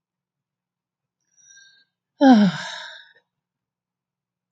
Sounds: Sigh